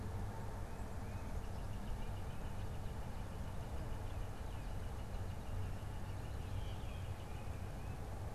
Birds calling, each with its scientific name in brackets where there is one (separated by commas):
Northern Flicker (Colaptes auratus), Blue Jay (Cyanocitta cristata)